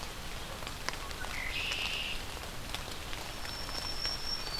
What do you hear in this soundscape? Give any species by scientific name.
Agelaius phoeniceus, Setophaga virens